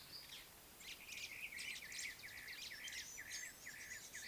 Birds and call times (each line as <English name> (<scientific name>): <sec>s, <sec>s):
Brown-crowned Tchagra (Tchagra australis): 2.9s